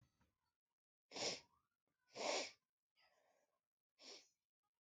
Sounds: Sniff